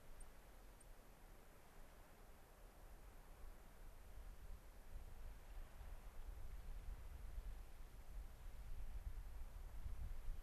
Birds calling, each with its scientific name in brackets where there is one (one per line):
White-crowned Sparrow (Zonotrichia leucophrys)